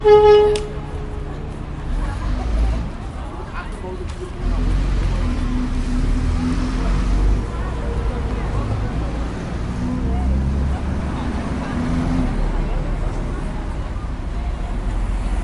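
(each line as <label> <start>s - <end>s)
A car horn honks twice in quick succession. 0.0s - 0.8s
Continuous engine and road noise from vehicles in traffic create a low ambient hum. 1.1s - 15.3s
Human voices and footsteps in a busy city environment. 1.1s - 15.3s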